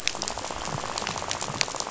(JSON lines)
{"label": "biophony, rattle", "recorder": "SoundTrap 500"}